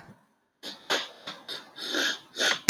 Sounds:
Sniff